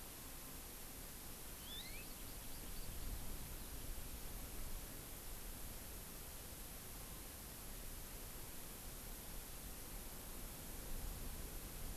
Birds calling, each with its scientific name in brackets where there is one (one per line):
Hawaii Amakihi (Chlorodrepanis virens)